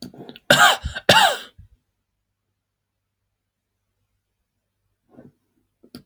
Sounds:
Cough